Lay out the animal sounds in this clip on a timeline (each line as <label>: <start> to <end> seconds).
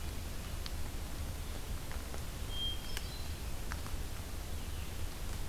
Hermit Thrush (Catharus guttatus): 2.4 to 3.4 seconds